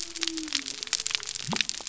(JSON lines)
{"label": "biophony", "recorder": "SoundTrap 300"}